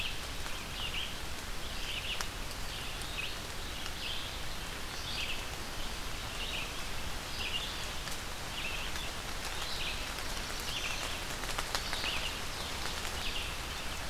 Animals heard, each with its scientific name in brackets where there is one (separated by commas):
Black-throated Blue Warbler (Setophaga caerulescens), Red-eyed Vireo (Vireo olivaceus)